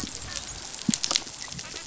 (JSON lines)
{"label": "biophony, dolphin", "recorder": "SoundTrap 500"}